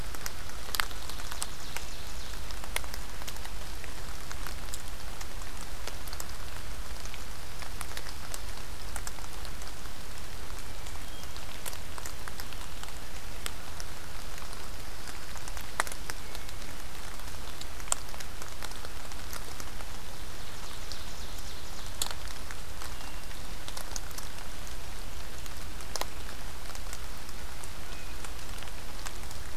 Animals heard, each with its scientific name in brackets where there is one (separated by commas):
Ovenbird (Seiurus aurocapilla), Hermit Thrush (Catharus guttatus)